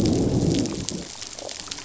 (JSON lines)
{"label": "biophony, growl", "recorder": "SoundTrap 500"}